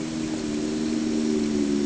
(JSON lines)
{"label": "anthrophony, boat engine", "recorder": "HydroMoth"}